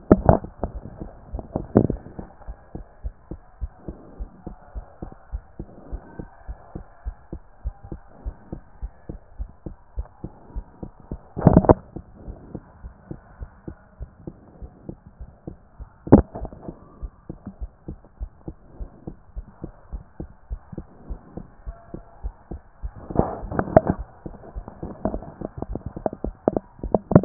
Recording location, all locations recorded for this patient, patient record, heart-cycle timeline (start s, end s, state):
pulmonary valve (PV)
pulmonary valve (PV)+tricuspid valve (TV)+mitral valve (MV)
#Age: nan
#Sex: Female
#Height: nan
#Weight: nan
#Pregnancy status: True
#Murmur: Absent
#Murmur locations: nan
#Most audible location: nan
#Systolic murmur timing: nan
#Systolic murmur shape: nan
#Systolic murmur grading: nan
#Systolic murmur pitch: nan
#Systolic murmur quality: nan
#Diastolic murmur timing: nan
#Diastolic murmur shape: nan
#Diastolic murmur grading: nan
#Diastolic murmur pitch: nan
#Diastolic murmur quality: nan
#Outcome: Normal
#Campaign: 2014 screening campaign
0.00	0.08	diastole
0.08	0.24	S1
0.24	0.30	systole
0.30	0.44	S2
0.44	0.68	diastole
0.68	0.84	S1
0.84	0.98	systole
0.98	1.12	S2
1.12	1.30	diastole
1.30	1.46	S1
1.46	1.54	systole
1.54	1.68	S2
1.68	1.82	diastole
1.82	2.00	S1
2.00	2.16	systole
2.16	2.28	S2
2.28	2.48	diastole
2.48	2.58	S1
2.58	2.74	systole
2.74	2.84	S2
2.84	3.00	diastole
3.00	3.14	S1
3.14	3.30	systole
3.30	3.40	S2
3.40	3.58	diastole
3.58	3.72	S1
3.72	3.86	systole
3.86	3.96	S2
3.96	4.16	diastole
4.16	4.30	S1
4.30	4.46	systole
4.46	4.56	S2
4.56	4.76	diastole
4.76	4.86	S1
4.86	5.02	systole
5.02	5.12	S2
5.12	5.32	diastole
5.32	5.44	S1
5.44	5.60	systole
5.60	5.68	S2
5.68	5.88	diastole
5.88	6.02	S1
6.02	6.18	systole
6.18	6.28	S2
6.28	6.48	diastole
6.48	6.58	S1
6.58	6.76	systole
6.76	6.84	S2
6.84	7.02	diastole
7.02	7.16	S1
7.16	7.32	systole
7.32	7.42	S2
7.42	7.62	diastole
7.62	7.76	S1
7.76	7.90	systole
7.90	8.00	S2
8.00	8.22	diastole
8.22	8.36	S1
8.36	8.52	systole
8.52	8.62	S2
8.62	8.82	diastole
8.82	8.94	S1
8.94	9.10	systole
9.10	9.20	S2
9.20	9.36	diastole
9.36	9.50	S1
9.50	9.66	systole
9.66	9.76	S2
9.76	9.94	diastole
9.94	10.08	S1
10.08	10.24	systole
10.24	10.32	S2
10.32	10.54	diastole
10.54	10.66	S1
10.66	10.82	systole
10.82	10.92	S2
10.92	11.10	diastole
11.10	11.20	S1
11.20	11.32	systole
11.32	11.36	S2
11.36	11.54	diastole
11.54	11.72	S1
11.72	11.92	systole
11.92	12.04	S2
12.04	12.24	diastole
12.24	12.36	S1
12.36	12.52	systole
12.52	12.62	S2
12.62	12.82	diastole
12.82	12.94	S1
12.94	13.10	systole
13.10	13.20	S2
13.20	13.40	diastole
13.40	13.52	S1
13.52	13.68	systole
13.68	13.76	S2
13.76	13.98	diastole
13.98	14.10	S1
14.10	14.28	systole
14.28	14.36	S2
14.36	14.60	diastole
14.60	14.70	S1
14.70	14.88	systole
14.88	14.98	S2
14.98	15.20	diastole
15.20	15.30	S1
15.30	15.48	systole
15.48	15.58	S2
15.58	15.80	diastole
15.80	15.88	S1
15.88	16.06	systole
16.06	16.20	S2
16.20	16.36	diastole
16.36	16.50	S1
16.50	16.66	systole
16.66	16.76	S2
16.76	16.98	diastole
16.98	17.10	S1
17.10	17.30	systole
17.30	17.40	S2
17.40	17.60	diastole
17.60	17.72	S1
17.72	17.88	systole
17.88	17.98	S2
17.98	18.20	diastole
18.20	18.30	S1
18.30	18.48	systole
18.48	18.56	S2
18.56	18.78	diastole
18.78	18.92	S1
18.92	19.08	systole
19.08	19.18	S2
19.18	19.36	diastole
19.36	19.46	S1
19.46	19.64	systole
19.64	19.74	S2
19.74	19.92	diastole
19.92	20.04	S1
20.04	20.20	systole
20.20	20.30	S2
20.30	20.50	diastole
20.50	20.60	S1
20.60	20.72	systole
20.72	20.86	S2
20.86	21.08	diastole
21.08	21.22	S1
21.22	21.36	systole
21.36	21.48	S2
21.48	21.66	diastole
21.66	21.76	S1
21.76	21.92	systole
21.92	22.02	S2
22.02	22.22	diastole
22.22	22.36	S1
22.36	22.52	systole
22.52	22.62	S2
22.62	22.82	diastole
22.82	22.96	S1
22.96	23.16	systole
23.16	23.32	S2
23.32	23.52	diastole
23.52	23.70	S1
23.70	23.86	systole
23.86	24.00	S2
24.00	24.18	diastole
24.18	24.24	S1
24.24	24.34	systole
24.34	24.40	S2
24.40	24.54	diastole
24.54	24.68	S1
24.68	24.82	systole
24.82	24.92	S2
24.92	25.06	diastole
25.06	25.24	S1
25.24	25.40	systole
25.40	25.52	S2
25.52	25.70	diastole
25.70	25.80	S1
25.80	25.94	systole
25.94	26.04	S2
26.04	26.24	diastole
26.24	26.36	S1
26.36	26.54	systole
26.54	26.66	S2
26.66	26.84	diastole
26.84	27.02	S1
27.02	27.12	systole
27.12	27.25	S2